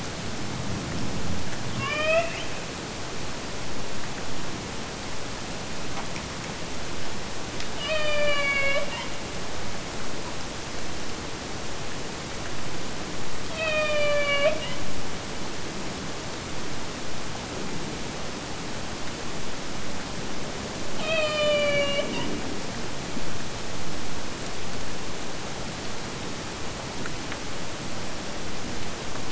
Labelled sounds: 1.7	2.8	killer whale, Bigg's (transient), AT1 transient, 0.51 to 5.8 kHz
7.7	9.2	killer whale, Bigg's (transient), AT1 transient, 0.40 to 5.6 kHz
13.4	14.9	killer whale, Bigg's (transient), AT1 transient, 0.46 to 7.4 kHz
20.9	22.5	killer whale, Bigg's (transient), AT1 transient, 0.46 to 7.6 kHz

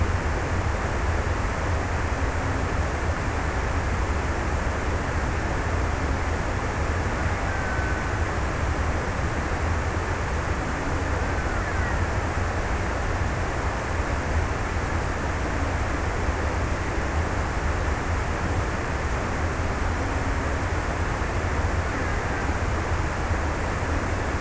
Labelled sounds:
6.8	9.3	killer whale, Bigg's (transient), 0.82 to 2.4 kHz

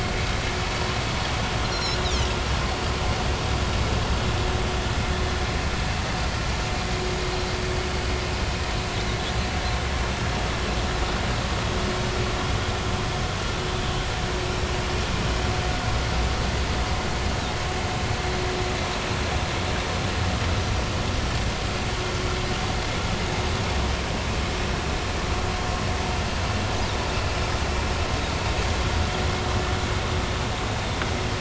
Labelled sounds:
1.6	2.3	Pacific white-sided dolphin, 2.9 to 5.8 kHz

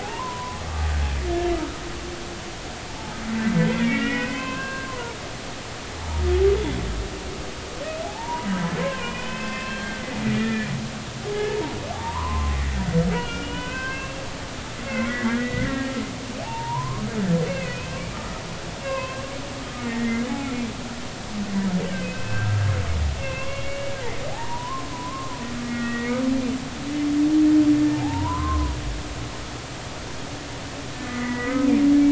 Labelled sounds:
0.0	0.9	humpback whale, 0.80 to 1.3 kHz
3.6	5.2	humpback whale, 0.86 to 3.2 kHz
6.0	6.8	humpback whale, 0.80 to 3.5 kHz
8.0	8.5	humpback whale, 0.80 to 1.0 kHz
8.8	10.7	humpback whale, 0.93 to 3.2 kHz
11.5	12.6	humpback whale, 0.80 to 1.2 kHz
13.1	14.2	humpback whale, 0.93 to 3.2 kHz
14.8	16.0	humpback whale, 1.8 to 2.3 kHz
16.4	17.0	humpback whale, 0.80 to 1.2 kHz
17.5	18.4	humpback whale, 1.2 to 2.8 kHz
18.8	20.5	humpback whale, 0.93 to 2.8 kHz
21.9	23.9	humpback whale, 0.99 to 5.3 kHz
24.3	26.1	humpback whale, 0.80 to 2.0 kHz
27.9	28.8	humpback whale, 0.80 to 1.4 kHz
31.0	31.7	humpback whale, 1.2 to 2.1 kHz

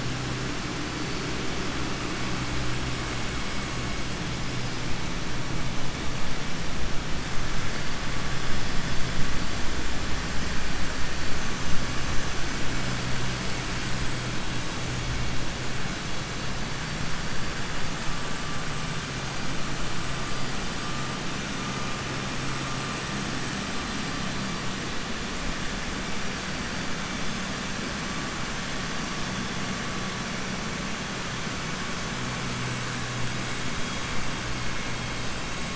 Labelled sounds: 16.8	18.2	vessel noise, 4.0 to 5.3 kHz

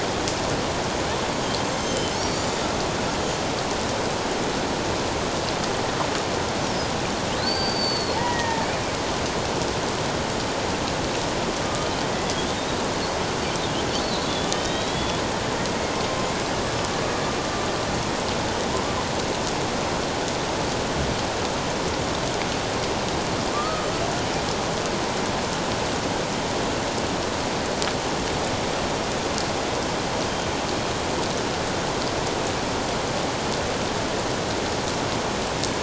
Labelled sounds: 1.7	2.4	killer whale, Bigg's (transient), 3.0 to 6.4 kHz
7.4	8.7	killer whale, Bigg's (transient), 0.84 to 4.8 kHz
13.9	14.2	killer whale, Bigg's (transient), 4.3 to 4.6 kHz
14.5	15.2	killer whale, Bigg's (transient), 3.2 to 4.0 kHz
18.7	19.0	killer whale, Bigg's (transient), 0.91 to 1.2 kHz
23.5	23.9	killer whale, Bigg's (transient), 1.1 to 1.3 kHz

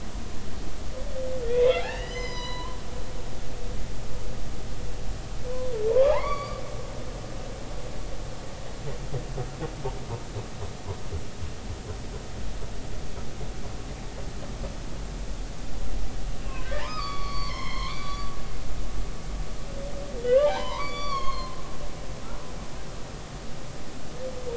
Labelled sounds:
1.4	2.8	humpback whale, 0.90 to 6.2 kHz
3.0	3.5	humpback whale, 4.8 to 5.2 kHz
5.9	6.6	humpback whale, 0.80 to 4.8 kHz
16.4	18.3	humpback whale, 0.86 to 5.5 kHz
20.2	21.6	humpback whale, 0.80 to 6.7 kHz

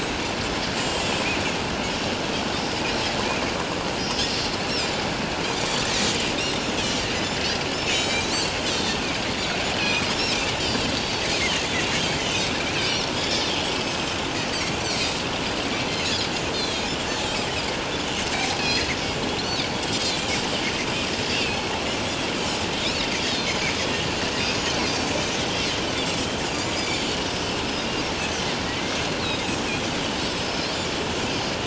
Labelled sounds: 0.8	1.3	Pacific white-sided dolphin, 2.5 to 7.9 kHz
6.4	6.6	Pacific white-sided dolphin, 3.5 to 3.8 kHz
7.8	9.0	Pacific white-sided dolphin, 2.2 to 7.9 kHz
9.8	10.1	Pacific white-sided dolphin, 2.2 to 5.1 kHz
10.5	11.3	Pacific white-sided dolphin, 3.5 to 4.8 kHz
12.0	14.2	Pacific white-sided dolphin, 2.8 to 6.5 kHz
14.8	15.1	Pacific white-sided dolphin, 3.9 to 4.8 kHz
15.8	16.8	Pacific white-sided dolphin, 3.2 to 4.3 kHz
18.6	18.9	Pacific white-sided dolphin, 4.0 to 4.3 kHz
19.4	20.3	Pacific white-sided dolphin, 3.1 to 7.9 kHz
21.3	21.6	Pacific white-sided dolphin, 2.3 to 2.9 kHz
22.8	24.1	Pacific white-sided dolphin, 3.2 to 6.8 kHz
24.8	25.2	Pacific white-sided dolphin, 4.5 to 4.9 kHz
26.5	26.7	Pacific white-sided dolphin, 4.5 to 5.2 kHz
28.6	29.5	Pacific white-sided dolphin, 1.8 to 4.2 kHz
30.3	30.6	Pacific white-sided dolphin, 5.1 to 5.4 kHz

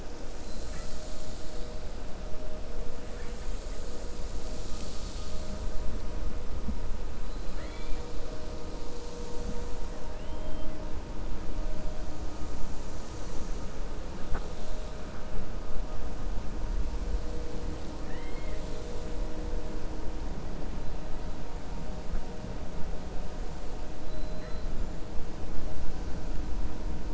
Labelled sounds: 7.4	8.0	killer whale, 0.60 to 4.3 kHz
10.1	10.7	killer whale, 2.0 to 3.2 kHz
18.0	19.1	killer whale, 1.7 to 8.0 kHz

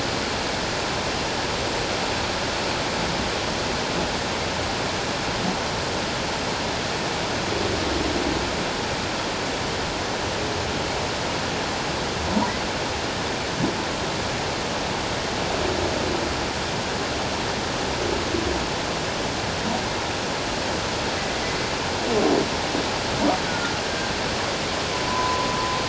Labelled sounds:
23.5	24.1	humpback whale, 1.3 to 1.6 kHz
24.9	25.5	humpback whale, 0.94 to 1.1 kHz

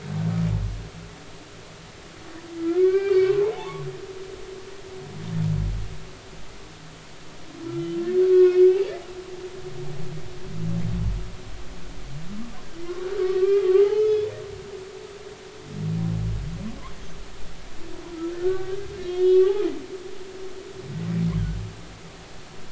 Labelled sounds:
2.6	3.9	humpback whale, 0.80 to 2.4 kHz
8.2	8.9	humpback whale, 1.0 to 3.4 kHz
13.2	15.3	humpback whale, 1.1 to 5.2 kHz
18.1	19.7	humpback whale, 1.1 to 4.4 kHz

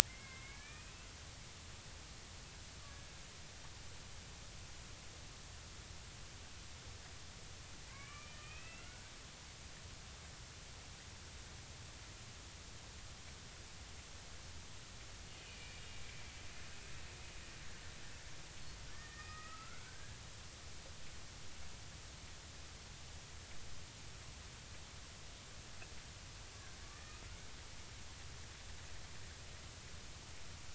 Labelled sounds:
0.1	0.9	killer whale, Bigg's (transient), 1.6 to 2.6 kHz
2.9	3.1	killer whale, Bigg's (transient), 1.6 to 1.7 kHz
7.9	9.1	killer whale, Bigg's (transient), 1.0 to 3.2 kHz
15.4	15.8	killer whale, Bigg's (transient), 2.3 to 2.6 kHz
18.9	20.2	killer whale, Bigg's (transient), 1.2 to 2.0 kHz
26.8	27.2	killer whale, Bigg's (transient), 1.1 to 1.4 kHz

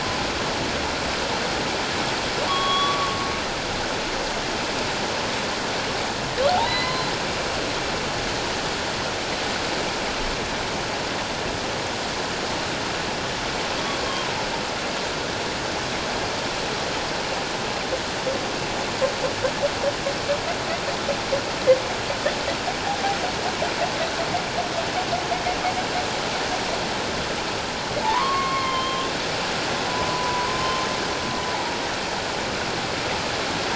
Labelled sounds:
2.5	3.2	humpback whale, 1.0 to 3.4 kHz
6.5	7.1	humpback whale, 0.78 to 4.2 kHz
14.1	14.4	humpback whale, 0.91 to 1.1 kHz
28.0	29.1	humpback whale, 0.81 to 4.5 kHz
29.9	30.6	humpback whale, 0.94 to 1.1 kHz

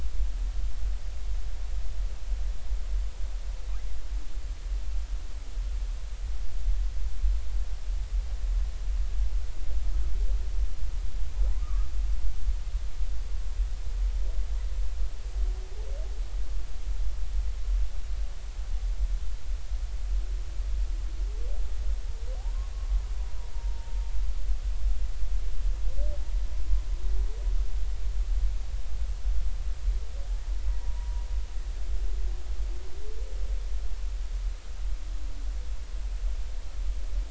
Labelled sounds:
11.6	11.9	humpback whale, 1.1 to 1.3 kHz
23.5	24.0	humpback whale, 0.86 to 0.99 kHz
30.7	31.2	humpback whale, 0.90 to 1.0 kHz

